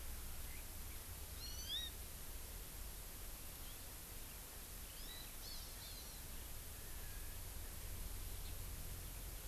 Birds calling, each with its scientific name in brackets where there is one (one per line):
Hawaii Amakihi (Chlorodrepanis virens)